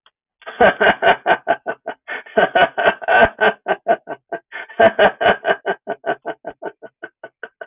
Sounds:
Laughter